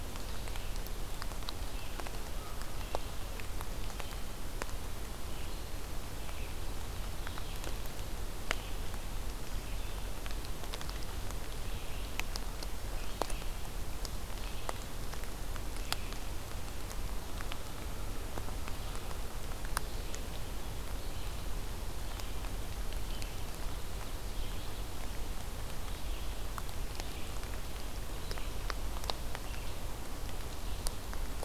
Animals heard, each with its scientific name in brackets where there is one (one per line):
Red-eyed Vireo (Vireo olivaceus)